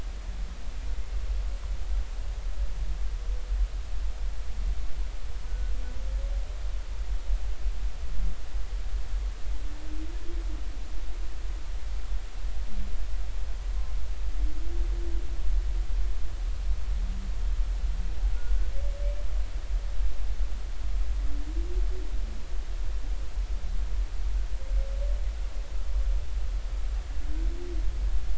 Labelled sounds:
5.5	5.7	humpback whale, 1.4 to 1.5 kHz

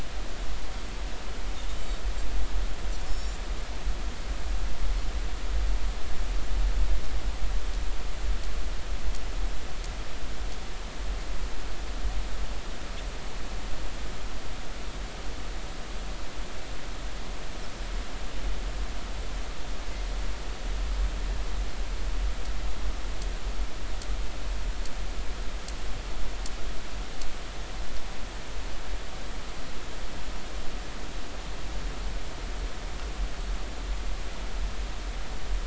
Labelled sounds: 1.7	2.0	Pacific white-sided dolphin, 7.5 to 7.6 kHz
3.1	3.4	Pacific white-sided dolphin, 5.2 to 7.3 kHz

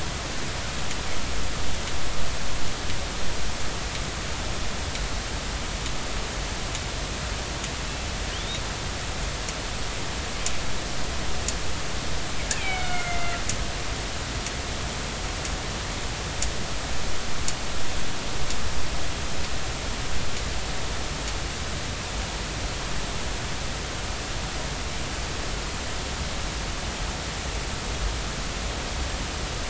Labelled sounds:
12.5	13.4	killer whale, northern resident, A clan, AB subclan, call N01ii, 1.3 to 2.8 kHz

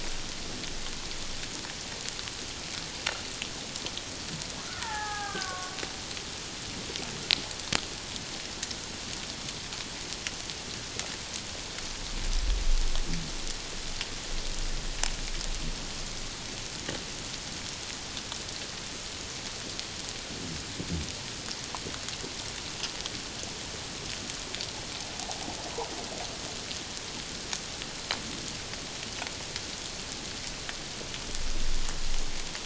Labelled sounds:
4.6	5.8	killer whale, Bigg's (transient), 0.78 to 1.9 kHz

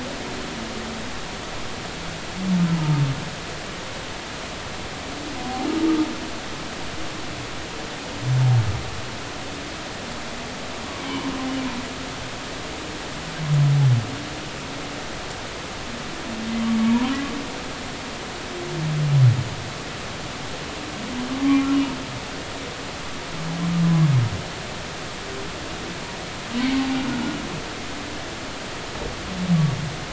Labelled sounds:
2.8	3.0	humpback whale, 0.86 to 1.0 kHz

